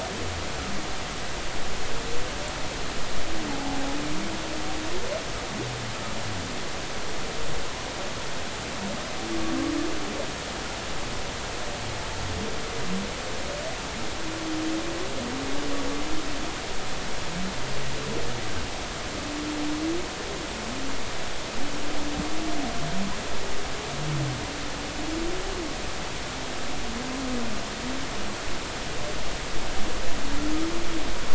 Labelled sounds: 3.5	3.8	humpback whale, 0.80 to 0.93 kHz

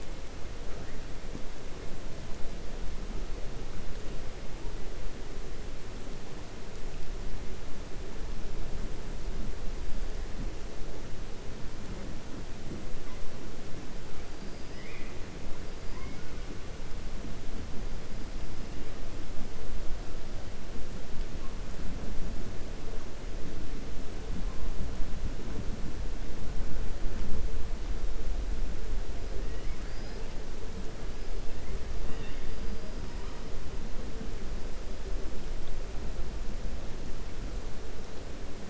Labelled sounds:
14.6	15.2	killer whale, 1.2 to 3.4 kHz
15.8	16.4	killer whale, 0.95 to 2.6 kHz

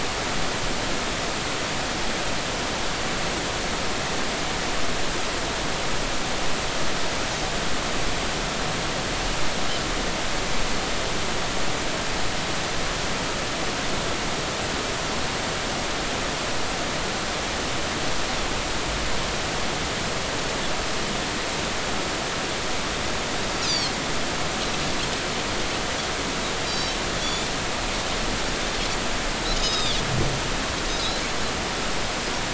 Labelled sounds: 23.6	24.0	Pacific white-sided dolphin, 3.1 to 5.2 kHz
26.7	27.5	Pacific white-sided dolphin, 3.3 to 7.3 kHz
29.6	30.0	Pacific white-sided dolphin, 3.2 to 5.2 kHz

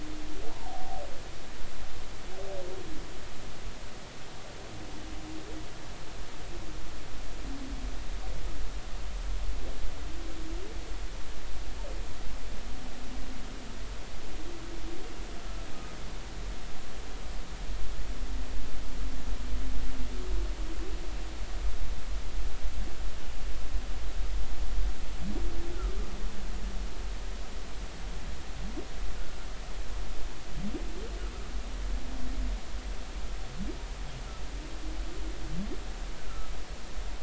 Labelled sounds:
0.5	1.0	humpback whale, 0.80 to 1.1 kHz

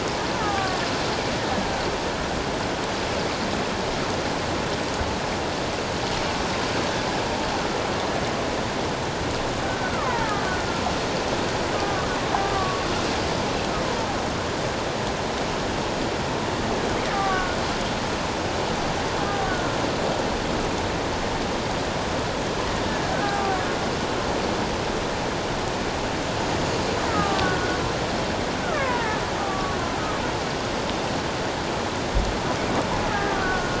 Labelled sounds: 1.4	1.8	killer whale, Bigg's (transient), 1.4 to 1.9 kHz
9.7	10.6	killer whale, Bigg's (transient), 0.81 to 2.2 kHz
11.7	12.9	killer whale, Bigg's (transient), 1.1 to 1.3 kHz
17.1	17.6	killer whale, Bigg's (transient), 1.1 to 1.6 kHz
19.5	19.8	killer whale, Bigg's (transient), 1.3 to 1.6 kHz
23.1	23.6	killer whale, Bigg's (transient), 0.78 to 1.7 kHz
27.1	27.8	killer whale, Bigg's (transient), 1.1 to 1.6 kHz
28.6	29.8	killer whale, Bigg's (transient), 0.84 to 1.6 kHz
33.1	33.7	killer whale, Bigg's (transient), 1.1 to 1.9 kHz

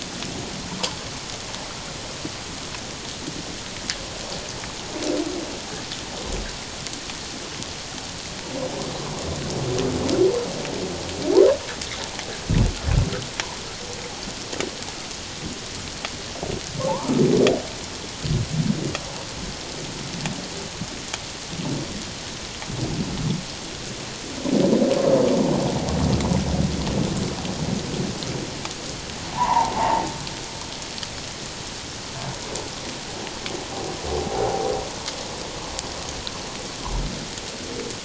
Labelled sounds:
16.9	17.2	humpback whale, 0.78 to 1.3 kHz
29.3	30.0	humpback whale, 0.78 to 1.2 kHz

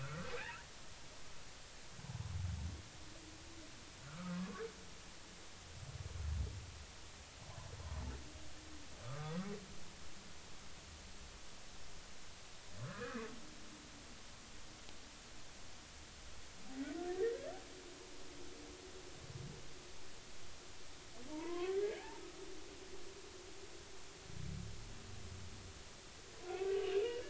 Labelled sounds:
0.0	0.3	humpback whale, 1.3 to 1.5 kHz
4.0	4.6	humpback whale, 1.0 to 1.5 kHz
9.0	9.3	humpback whale, 1.2 to 1.4 kHz
12.8	13.3	humpback whale, 0.96 to 2.6 kHz
17.1	17.4	humpback whale, 1.7 to 2.0 kHz
21.4	22.8	humpback whale, 0.86 to 2.3 kHz
26.8	27.0	humpback whale, 2.8 to 3.0 kHz

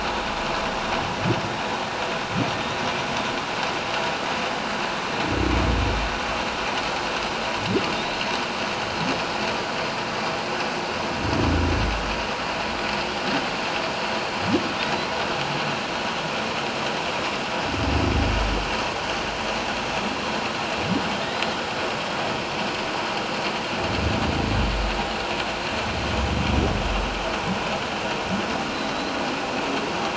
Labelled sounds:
14.8	15.1	humpback whale, 3.5 to 4.1 kHz
28.7	29.2	humpback whale, 3.8 to 4.2 kHz

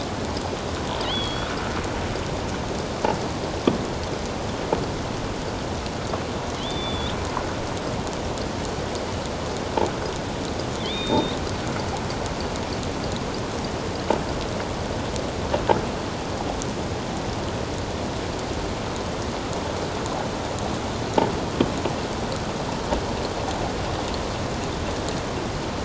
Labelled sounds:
1.0	1.5	killer whale, offshore, 2.8 to 4.7 kHz
6.6	7.2	killer whale, offshore, 2.9 to 3.9 kHz
10.8	11.4	killer whale, offshore, 2.2 to 3.9 kHz

